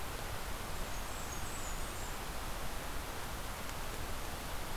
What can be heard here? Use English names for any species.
Blackburnian Warbler